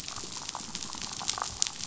{"label": "biophony, damselfish", "recorder": "SoundTrap 500"}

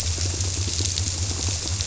{"label": "biophony", "recorder": "SoundTrap 300"}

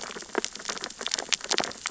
{"label": "biophony, sea urchins (Echinidae)", "recorder": "SoundTrap 600 or HydroMoth"}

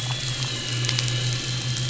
{"label": "anthrophony, boat engine", "recorder": "SoundTrap 500"}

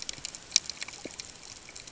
{"label": "ambient", "recorder": "HydroMoth"}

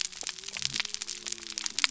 {"label": "biophony", "recorder": "SoundTrap 300"}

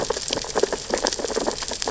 {"label": "biophony, sea urchins (Echinidae)", "recorder": "SoundTrap 600 or HydroMoth"}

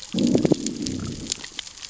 {"label": "biophony, growl", "recorder": "SoundTrap 600 or HydroMoth"}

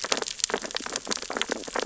{"label": "biophony, sea urchins (Echinidae)", "recorder": "SoundTrap 600 or HydroMoth"}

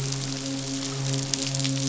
{"label": "biophony, midshipman", "recorder": "SoundTrap 500"}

